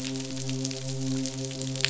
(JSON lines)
{"label": "biophony, midshipman", "recorder": "SoundTrap 500"}